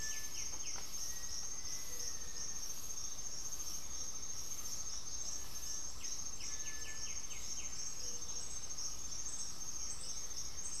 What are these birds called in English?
White-winged Becard, Gray-fronted Dove, Blue-gray Saltator, Black-faced Antthrush, Cinereous Tinamou